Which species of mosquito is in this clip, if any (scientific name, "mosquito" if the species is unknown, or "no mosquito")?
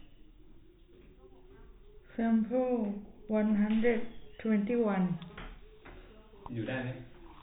no mosquito